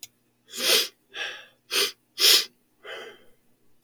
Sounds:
Sniff